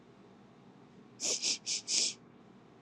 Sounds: Sniff